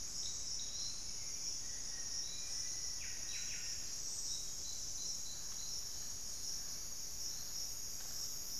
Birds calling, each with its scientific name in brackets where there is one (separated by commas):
Buff-breasted Wren (Cantorchilus leucotis), Black-faced Antthrush (Formicarius analis), Hauxwell's Thrush (Turdus hauxwelli), unidentified bird